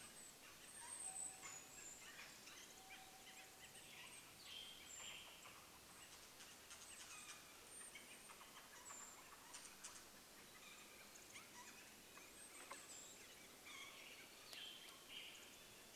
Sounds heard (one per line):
Golden-crowned Kinglet call
unidentified sound
Canada Jay call
Western Tanager song
woodpecker drumming